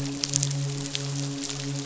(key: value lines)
label: biophony, midshipman
recorder: SoundTrap 500